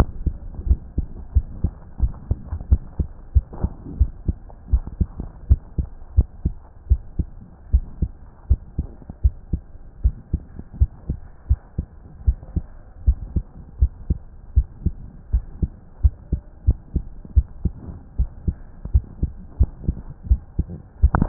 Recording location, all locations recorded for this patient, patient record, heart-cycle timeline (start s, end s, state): mitral valve (MV)
aortic valve (AV)+pulmonary valve (PV)+tricuspid valve (TV)+mitral valve (MV)
#Age: Child
#Sex: Female
#Height: 140.0 cm
#Weight: 29.0 kg
#Pregnancy status: False
#Murmur: Absent
#Murmur locations: nan
#Most audible location: nan
#Systolic murmur timing: nan
#Systolic murmur shape: nan
#Systolic murmur grading: nan
#Systolic murmur pitch: nan
#Systolic murmur quality: nan
#Diastolic murmur timing: nan
#Diastolic murmur shape: nan
#Diastolic murmur grading: nan
#Diastolic murmur pitch: nan
#Diastolic murmur quality: nan
#Outcome: Normal
#Campaign: 2015 screening campaign
0.00	0.38	unannotated
0.38	0.64	diastole
0.64	0.80	S1
0.80	0.94	systole
0.94	1.06	S2
1.06	1.34	diastole
1.34	1.48	S1
1.48	1.60	systole
1.60	1.72	S2
1.72	2.00	diastole
2.00	2.14	S1
2.14	2.28	systole
2.28	2.38	S2
2.38	2.66	diastole
2.66	2.82	S1
2.82	2.98	systole
2.98	3.08	S2
3.08	3.34	diastole
3.34	3.46	S1
3.46	3.60	systole
3.60	3.72	S2
3.72	3.98	diastole
3.98	4.12	S1
4.12	4.26	systole
4.26	4.36	S2
4.36	4.68	diastole
4.68	4.84	S1
4.84	4.98	systole
4.98	5.10	S2
5.10	5.46	diastole
5.46	5.60	S1
5.60	5.74	systole
5.74	5.86	S2
5.86	6.14	diastole
6.14	6.28	S1
6.28	6.44	systole
6.44	6.56	S2
6.56	6.86	diastole
6.86	7.02	S1
7.02	7.18	systole
7.18	7.30	S2
7.30	7.70	diastole
7.70	7.86	S1
7.86	8.00	systole
8.00	8.12	S2
8.12	8.46	diastole
8.46	8.60	S1
8.60	8.74	systole
8.74	8.88	S2
8.88	9.20	diastole
9.20	9.34	S1
9.34	9.52	systole
9.52	9.62	S2
9.62	10.02	diastole
10.02	10.16	S1
10.16	10.32	systole
10.32	10.44	S2
10.44	10.80	diastole
10.80	10.92	S1
10.92	11.08	systole
11.08	11.18	S2
11.18	11.46	diastole
11.46	11.58	S1
11.58	11.78	systole
11.78	11.88	S2
11.88	12.24	diastole
12.24	12.38	S1
12.38	12.54	systole
12.54	12.66	S2
12.66	13.04	diastole
13.04	13.18	S1
13.18	13.32	systole
13.32	13.44	S2
13.44	13.78	diastole
13.78	13.92	S1
13.92	14.06	systole
14.06	14.20	S2
14.20	14.56	diastole
14.56	14.68	S1
14.68	14.82	systole
14.82	14.94	S2
14.94	15.30	diastole
15.30	15.44	S1
15.44	15.62	systole
15.62	15.72	S2
15.72	16.00	diastole
16.00	16.14	S1
16.14	16.28	systole
16.28	16.40	S2
16.40	16.66	diastole
16.66	16.78	S1
16.78	16.92	systole
16.92	17.04	S2
17.04	17.34	diastole
17.34	17.48	S1
17.48	17.62	systole
17.62	17.74	S2
17.74	18.16	diastole
18.16	18.30	S1
18.30	18.44	systole
18.44	18.58	S2
18.58	18.92	diastole
18.92	19.06	S1
19.06	19.22	systole
19.22	19.34	S2
19.34	19.60	diastole
19.60	19.72	S1
19.72	19.84	systole
19.84	19.96	S2
19.96	20.26	diastole
20.26	20.42	S1
20.42	20.56	systole
20.56	20.68	S2
20.68	20.87	diastole
20.87	21.28	unannotated